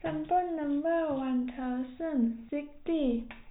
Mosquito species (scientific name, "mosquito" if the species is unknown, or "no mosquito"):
no mosquito